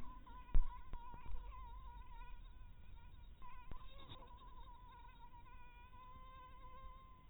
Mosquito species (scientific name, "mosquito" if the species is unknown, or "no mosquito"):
mosquito